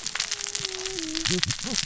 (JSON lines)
{"label": "biophony, cascading saw", "recorder": "SoundTrap 600 or HydroMoth"}